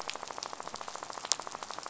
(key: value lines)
label: biophony, rattle
recorder: SoundTrap 500